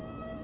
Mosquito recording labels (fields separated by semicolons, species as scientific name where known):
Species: Anopheles quadriannulatus; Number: one; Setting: insect culture